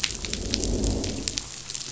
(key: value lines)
label: biophony, growl
recorder: SoundTrap 500